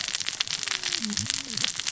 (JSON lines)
{"label": "biophony, cascading saw", "recorder": "SoundTrap 600 or HydroMoth"}